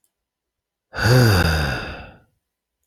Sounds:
Sigh